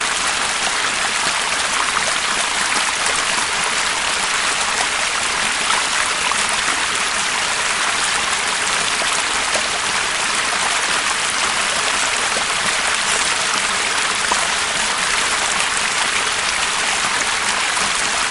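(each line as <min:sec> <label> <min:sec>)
0:00.0 Water rippling and gurgling in a stream or river nearby. 0:18.3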